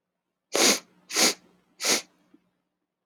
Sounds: Sniff